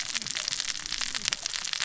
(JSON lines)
{"label": "biophony, cascading saw", "recorder": "SoundTrap 600 or HydroMoth"}